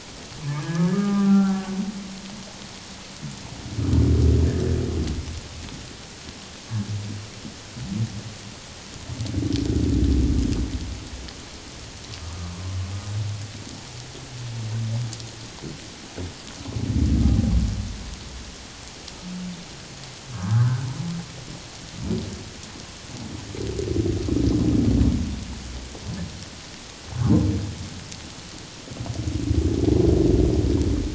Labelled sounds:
0.4	1.7	humpback whale, 0.78 to 1.8 kHz
12.3	12.5	humpback whale, 1.1 to 1.3 kHz
20.3	20.8	humpback whale, 0.94 to 1.8 kHz

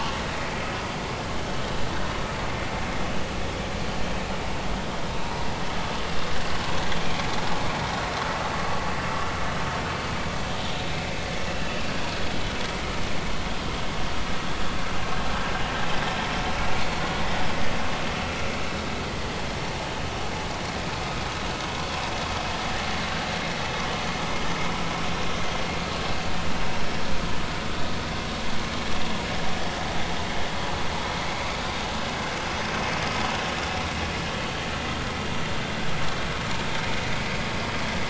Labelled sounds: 17.2	17.5	vessel noise, 3.4 to 3.6 kHz

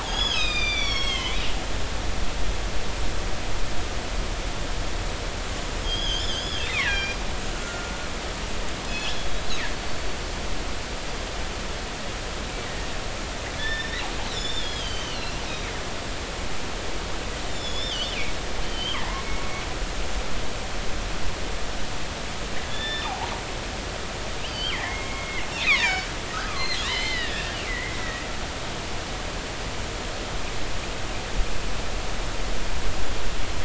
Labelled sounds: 0.0	1.4	killer whale, northern resident, G clan, GG subclan, call N23ii, 0.90 to 6.8 kHz
5.8	7.2	killer whale, northern resident, G clan, 1.5 to 5.9 kHz
7.5	7.9	killer whale, northern resident, G clan, 1.3 to 1.5 kHz
8.9	9.2	killer whale, northern resident, G clan, call N24i, 2.7 to 3.5 kHz
13.6	14.0	killer whale, northern resident, G clan, GG subclan, call N28, 1.7 to 5.5 kHz
14.2	15.4	killer whale, northern resident, G clan, 2.6 to 7.3 kHz
17.5	18.2	killer whale, northern resident, G clan, 2.8 to 5.5 kHz
18.7	19.0	killer whale, northern resident, G clan, call N23i, 3.0 to 4.8 kHz
22.7	23.3	killer whale, northern resident, G clan, GG subclan, call N28, 0.80 to 5.5 kHz
24.4	25.4	killer whale, northern resident, G clan, call N23i, 1.7 to 4.9 kHz
25.5	26.1	killer whale, northern resident, G clan, 0.90 to 7.3 kHz
26.3	28.2	killer whale, northern resident, G clan, 0.96 to 4.4 kHz

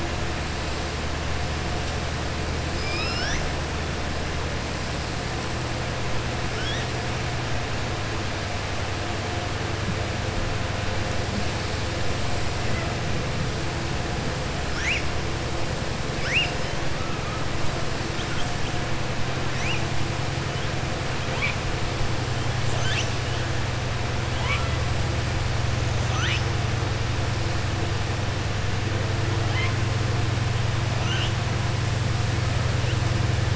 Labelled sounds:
2.7	3.4	killer whale, southern resident, 1.3 to 6.4 kHz

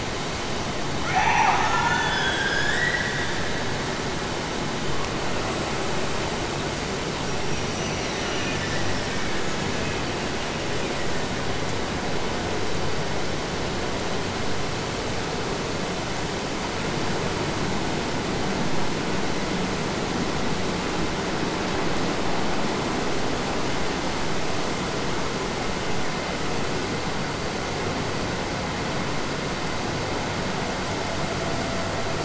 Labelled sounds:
1.1	3.1	killer whale, Bigg's (transient), Gulf of Alaska transient, 0.46 to 8.0 kHz
7.1	8.7	killer whale, Bigg's (transient), Gulf of Alaska transient, 2.3 to 6.2 kHz

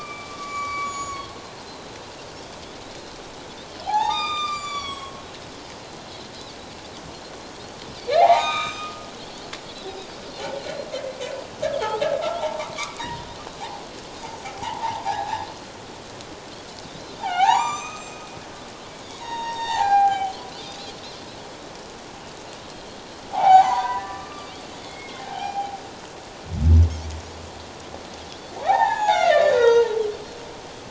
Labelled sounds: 0.0	0.3	Pacific white-sided dolphin, 2.2 to 2.4 kHz
0.3	1.3	humpback whale, 1.0 to 7.0 kHz
1.7	2.0	Pacific white-sided dolphin, 3.9 to 4.2 kHz
3.8	5.2	humpback whale, 0.78 to 8.0 kHz
5.5	6.3	Pacific white-sided dolphin, 3.8 to 5.2 kHz
8.2	9.0	humpback whale, 0.78 to 4.2 kHz
9.2	9.5	Pacific white-sided dolphin, 4.1 to 4.6 kHz
10.9	12.0	humpback whale, 2.0 to 3.5 kHz
12.8	13.2	humpback whale, 0.91 to 2.0 kHz
14.4	15.8	humpback whale, 0.78 to 4.4 kHz
15.0	15.5	Pacific white-sided dolphin, 0.78 to 2.0 kHz
16.8	18.3	humpback whale, 0.78 to 7.6 kHz
19.1	20.3	humpback whale, 0.78 to 7.5 kHz
20.1	20.5	Pacific white-sided dolphin, 2.8 to 3.4 kHz
22.7	23.0	Pacific white-sided dolphin, 3.1 to 3.4 kHz
23.3	24.5	humpback whale, 0.78 to 2.4 kHz
24.3	25.3	Pacific white-sided dolphin, 2.0 to 2.4 kHz
25.2	25.8	humpback whale, 0.78 to 1.7 kHz
28.6	29.9	humpback whale, 0.78 to 7.0 kHz

